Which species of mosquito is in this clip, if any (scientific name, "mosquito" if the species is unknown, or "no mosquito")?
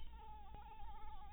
Anopheles maculatus